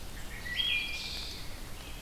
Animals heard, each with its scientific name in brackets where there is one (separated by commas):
Wood Thrush (Hylocichla mustelina)